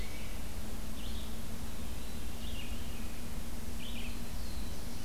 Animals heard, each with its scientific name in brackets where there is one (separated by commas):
Red-eyed Vireo (Vireo olivaceus), Veery (Catharus fuscescens), Black-throated Blue Warbler (Setophaga caerulescens)